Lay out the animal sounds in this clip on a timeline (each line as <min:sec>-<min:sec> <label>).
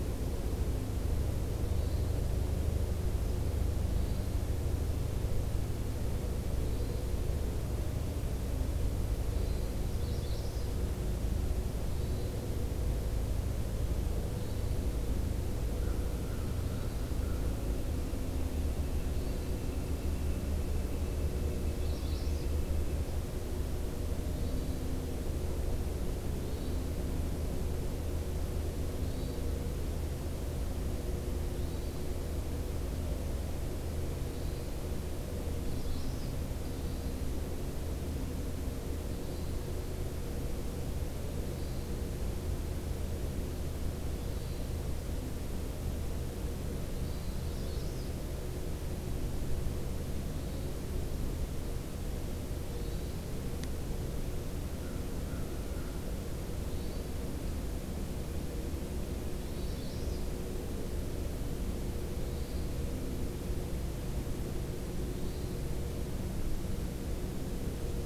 0:01.6-0:02.0 Hermit Thrush (Catharus guttatus)
0:03.8-0:04.4 Hermit Thrush (Catharus guttatus)
0:06.5-0:07.3 Hermit Thrush (Catharus guttatus)
0:09.3-0:09.8 Hermit Thrush (Catharus guttatus)
0:09.8-0:10.7 Magnolia Warbler (Setophaga magnolia)
0:11.8-0:12.5 Hermit Thrush (Catharus guttatus)
0:14.2-0:14.9 Hermit Thrush (Catharus guttatus)
0:15.7-0:17.5 American Crow (Corvus brachyrhynchos)
0:16.6-0:17.3 Hermit Thrush (Catharus guttatus)
0:17.1-0:23.0 Northern Flicker (Colaptes auratus)
0:19.0-0:19.6 Hermit Thrush (Catharus guttatus)
0:21.7-0:22.1 Hermit Thrush (Catharus guttatus)
0:21.7-0:22.5 Magnolia Warbler (Setophaga magnolia)
0:24.4-0:24.9 Hermit Thrush (Catharus guttatus)
0:26.2-0:26.9 Hermit Thrush (Catharus guttatus)
0:29.0-0:29.7 Hermit Thrush (Catharus guttatus)
0:31.5-0:32.1 Hermit Thrush (Catharus guttatus)
0:34.2-0:34.9 Hermit Thrush (Catharus guttatus)
0:35.5-0:36.4 Magnolia Warbler (Setophaga magnolia)
0:36.6-0:37.2 Hermit Thrush (Catharus guttatus)
0:39.0-0:39.6 Hermit Thrush (Catharus guttatus)
0:41.3-0:42.0 Hermit Thrush (Catharus guttatus)
0:44.2-0:44.8 Hermit Thrush (Catharus guttatus)
0:46.9-0:47.4 Hermit Thrush (Catharus guttatus)
0:47.4-0:48.1 Magnolia Warbler (Setophaga magnolia)
0:50.1-0:50.7 Hermit Thrush (Catharus guttatus)
0:52.5-0:53.2 Hermit Thrush (Catharus guttatus)
0:54.7-0:56.2 American Crow (Corvus brachyrhynchos)
0:56.5-0:57.2 Hermit Thrush (Catharus guttatus)
0:59.2-0:59.9 Hermit Thrush (Catharus guttatus)
0:59.4-1:00.3 Magnolia Warbler (Setophaga magnolia)
1:02.1-1:02.7 Hermit Thrush (Catharus guttatus)
1:05.0-1:05.5 Hermit Thrush (Catharus guttatus)